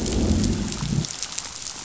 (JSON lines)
{"label": "biophony, growl", "recorder": "SoundTrap 500"}